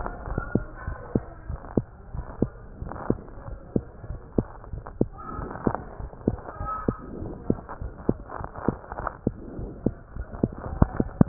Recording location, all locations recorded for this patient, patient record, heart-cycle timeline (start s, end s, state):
aortic valve (AV)
aortic valve (AV)+pulmonary valve (PV)+tricuspid valve (TV)+mitral valve (MV)
#Age: Child
#Sex: Female
#Height: 136.0 cm
#Weight: 18.5 kg
#Pregnancy status: False
#Murmur: Absent
#Murmur locations: nan
#Most audible location: nan
#Systolic murmur timing: nan
#Systolic murmur shape: nan
#Systolic murmur grading: nan
#Systolic murmur pitch: nan
#Systolic murmur quality: nan
#Diastolic murmur timing: nan
#Diastolic murmur shape: nan
#Diastolic murmur grading: nan
#Diastolic murmur pitch: nan
#Diastolic murmur quality: nan
#Outcome: Abnormal
#Campaign: 2015 screening campaign
0.00	0.12	unannotated
0.12	0.30	diastole
0.30	0.46	S1
0.46	0.54	systole
0.54	0.66	S2
0.66	0.86	diastole
0.86	0.96	S1
0.96	1.14	systole
1.14	1.24	S2
1.24	1.48	diastole
1.48	1.58	S1
1.58	1.76	systole
1.76	1.86	S2
1.86	2.12	diastole
2.12	2.26	S1
2.26	2.40	systole
2.40	2.50	S2
2.50	2.80	diastole
2.80	2.94	S1
2.94	3.08	systole
3.08	3.18	S2
3.18	3.46	diastole
3.46	3.58	S1
3.58	3.74	systole
3.74	3.84	S2
3.84	4.08	diastole
4.08	4.20	S1
4.20	4.34	systole
4.34	4.48	S2
4.48	4.72	diastole
4.72	4.82	S1
4.82	4.96	systole
4.96	5.10	S2
5.10	5.34	diastole
5.34	5.50	S1
5.50	5.62	systole
5.62	5.76	S2
5.76	6.00	diastole
6.00	6.10	S1
6.10	6.26	systole
6.26	6.38	S2
6.38	6.60	diastole
6.60	6.70	S1
6.70	6.86	systole
6.86	6.96	S2
6.96	7.20	diastole
7.20	7.34	S1
7.34	7.48	systole
7.48	7.60	S2
7.60	7.82	diastole
7.82	7.92	S1
7.92	8.04	systole
8.04	8.18	S2
8.18	8.40	diastole
8.40	8.50	S1
8.50	8.64	systole
8.64	8.76	S2
8.76	9.00	diastole
9.00	9.10	S1
9.10	9.26	systole
9.26	9.34	S2
9.34	9.56	diastole
9.56	9.70	S1
9.70	9.84	systole
9.84	9.94	S2
9.94	10.16	diastole
10.16	10.26	S1
10.26	10.42	systole
10.42	10.54	S2
10.54	10.72	diastole
10.72	10.86	S1
10.86	10.98	systole
10.98	11.08	S2
11.08	11.28	diastole